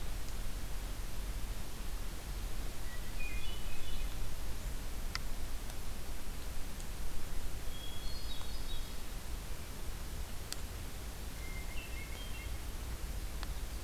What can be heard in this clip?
Hermit Thrush